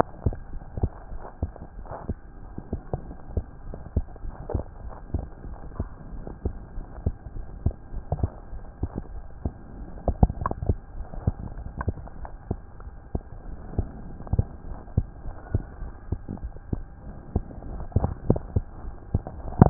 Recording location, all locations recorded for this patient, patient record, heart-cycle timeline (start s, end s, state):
tricuspid valve (TV)
aortic valve (AV)+pulmonary valve (PV)+tricuspid valve (TV)+mitral valve (MV)
#Age: Child
#Sex: Female
#Height: nan
#Weight: nan
#Pregnancy status: False
#Murmur: Absent
#Murmur locations: nan
#Most audible location: nan
#Systolic murmur timing: nan
#Systolic murmur shape: nan
#Systolic murmur grading: nan
#Systolic murmur pitch: nan
#Systolic murmur quality: nan
#Diastolic murmur timing: nan
#Diastolic murmur shape: nan
#Diastolic murmur grading: nan
#Diastolic murmur pitch: nan
#Diastolic murmur quality: nan
#Outcome: Abnormal
#Campaign: 2015 screening campaign
0.00	3.03	unannotated
3.03	3.16	S1
3.16	3.32	systole
3.32	3.46	S2
3.46	3.65	diastole
3.65	3.74	S1
3.74	3.92	systole
3.92	4.06	S2
4.06	4.24	diastole
4.24	4.34	S1
4.34	4.52	systole
4.52	4.66	S2
4.66	4.84	diastole
4.84	4.94	S1
4.94	5.14	systole
5.14	5.28	S2
5.28	5.46	diastole
5.46	5.58	S1
5.58	5.78	systole
5.78	5.90	S2
5.90	6.12	diastole
6.12	6.24	S1
6.24	6.44	systole
6.44	6.56	S2
6.56	6.76	diastole
6.76	6.86	S1
6.86	7.04	systole
7.04	7.16	S2
7.16	7.36	diastole
7.36	7.46	S1
7.46	7.64	systole
7.64	7.76	S2
7.76	7.94	diastole
7.94	8.04	S1
8.04	8.20	systole
8.20	8.32	S2
8.32	8.52	diastole
8.52	8.62	S1
8.62	8.79	systole
8.79	8.92	S2
8.92	9.12	diastole
9.12	9.24	S1
9.24	9.44	systole
9.44	9.54	S2
9.54	9.78	diastole
9.78	9.88	S1
9.88	19.70	unannotated